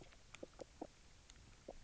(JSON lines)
{"label": "biophony, knock croak", "recorder": "SoundTrap 300"}